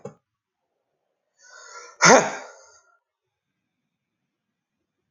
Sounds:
Sneeze